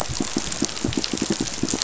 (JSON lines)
{"label": "biophony, pulse", "recorder": "SoundTrap 500"}